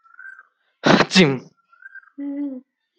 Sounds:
Sniff